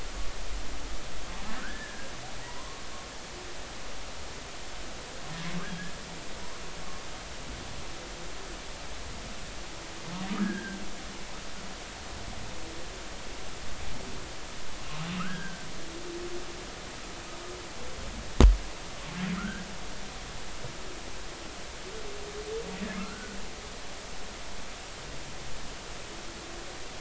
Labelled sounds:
1.6	2.1	humpback whale, 1.2 to 1.8 kHz
2.5	2.8	humpback whale, 0.90 to 1.1 kHz
10.4	10.8	humpback whale, 1.4 to 1.7 kHz
15.2	15.7	humpback whale, 1.2 to 1.7 kHz
19.3	19.7	humpback whale, 1.2 to 1.7 kHz
23.0	23.4	humpback whale, 1.2 to 1.6 kHz

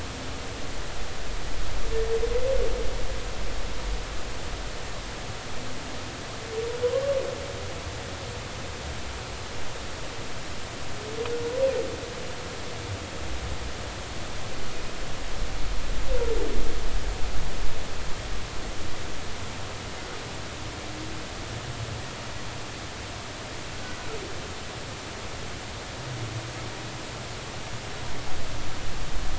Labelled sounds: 6.8	7.1	humpback whale, 0.96 to 1.2 kHz

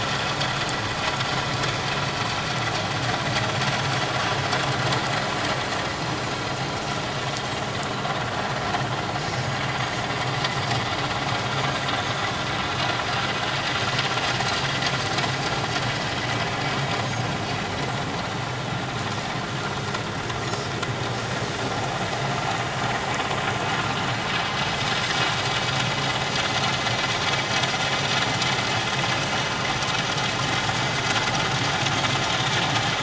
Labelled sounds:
11.9	12.2	Pacific white-sided dolphin, 7.8 to 8.0 kHz

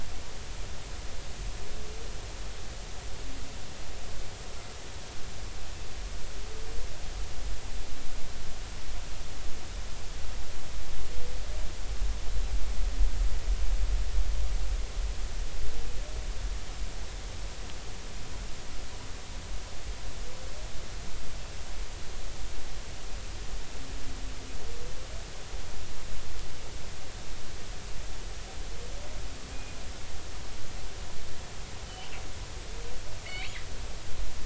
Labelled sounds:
33.2	33.5	killer whale, northern resident, G clan, GI subclan, call N24i, 1.9 to 2.9 kHz

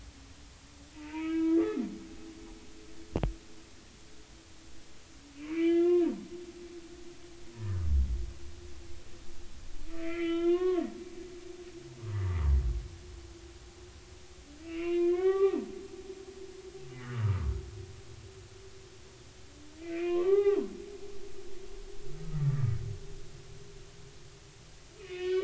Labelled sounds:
0.9	1.6	humpback whale, 0.86 to 3.0 kHz
5.5	6.1	humpback whale, 1.3 to 3.6 kHz
7.6	7.9	humpback whale, 1.1 to 1.9 kHz
10.0	10.8	humpback whale, 0.96 to 3.7 kHz
12.0	12.5	humpback whale, 0.86 to 2.0 kHz
14.6	15.6	humpback whale, 0.80 to 3.6 kHz
17.0	17.5	humpback whale, 0.99 to 1.5 kHz
19.8	20.6	humpback whale, 0.80 to 2.7 kHz
22.3	22.6	humpback whale, 1.6 to 2.0 kHz
25.0	25.4	humpback whale, 1.8 to 3.4 kHz

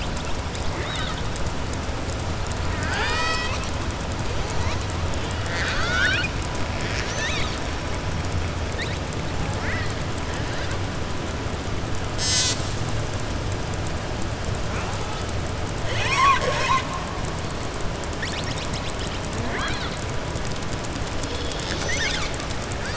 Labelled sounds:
0.7	1.2	killer whale, southern resident, 1.2 to 5.3 kHz
2.7	3.7	killer whale, southern resident, 0.54 to 7.8 kHz
5.4	6.3	killer whale, southern resident, 1.2 to 7.7 kHz
15.8	16.9	killer whale, southern resident, 0.58 to 7.7 kHz

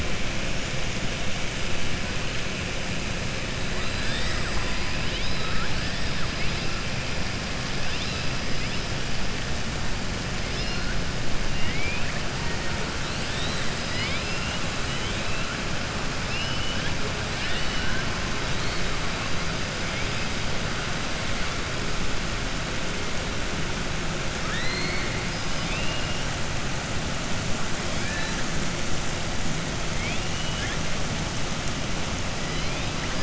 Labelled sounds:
11.5	12.1	killer whale, southern resident, 1.9 to 3.2 kHz
16.2	16.9	killer whale, southern resident, 2.4 to 3.5 kHz
24.4	26.1	killer whale, southern resident, 1.3 to 5.1 kHz
27.9	28.4	killer whale, southern resident, 0.87 to 4.9 kHz

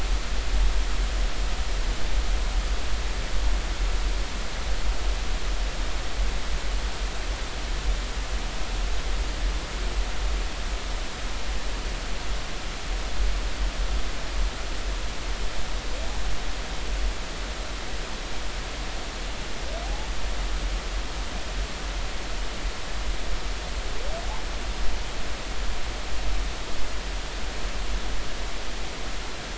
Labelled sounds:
19.8	20.1	humpback whale, 0.80 to 0.93 kHz

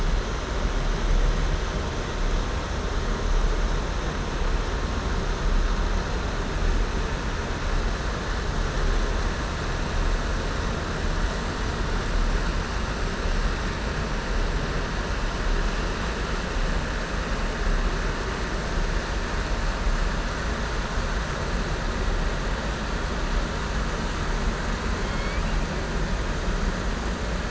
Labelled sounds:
25.0	25.5	killer whale, southern resident, 2.1 to 5.4 kHz

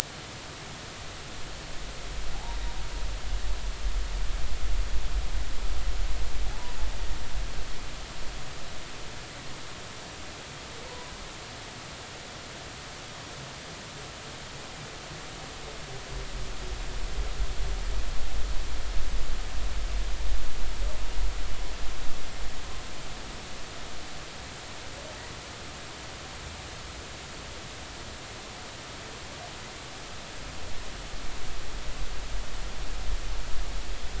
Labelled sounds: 10.9	11.1	humpback whale, 0.90 to 1.0 kHz

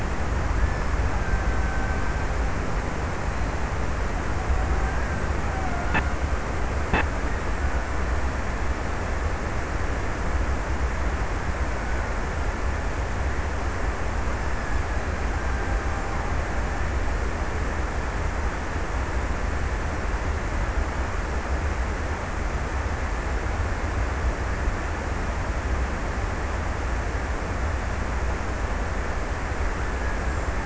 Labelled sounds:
0.5	3.0	killer whale, Bigg's (transient), 0.54 to 2.0 kHz
4.7	6.7	killer whale, Bigg's (transient), 0.43 to 1.9 kHz

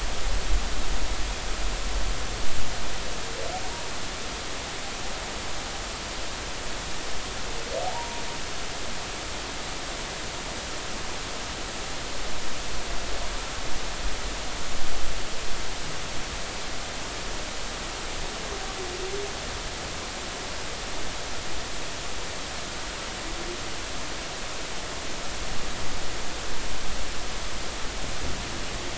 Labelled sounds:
7.9	8.2	humpback whale, 0.80 to 0.99 kHz

